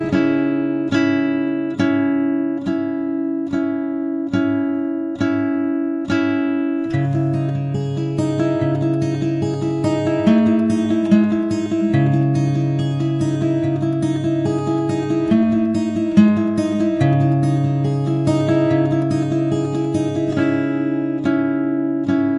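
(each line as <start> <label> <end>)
0.0 Intermittent, melodic, and rhythmic guitar playing repeats. 6.9
6.9 A melodic, smooth guitar playing a steady, rhythmic, and repeating pattern. 22.4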